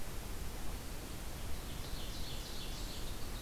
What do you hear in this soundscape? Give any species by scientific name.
Seiurus aurocapilla